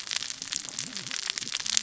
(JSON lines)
{"label": "biophony, cascading saw", "recorder": "SoundTrap 600 or HydroMoth"}